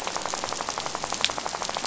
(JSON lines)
{"label": "biophony, rattle", "recorder": "SoundTrap 500"}